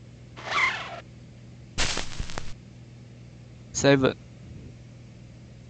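At 0.4 seconds, there is the sound of a zipper. After that, at 1.8 seconds, crackling is heard. Finally, at 3.8 seconds, someone says "Seven." A steady noise continues about 20 decibels below the sounds.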